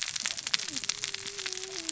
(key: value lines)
label: biophony, cascading saw
recorder: SoundTrap 600 or HydroMoth